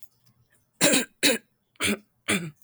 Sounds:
Throat clearing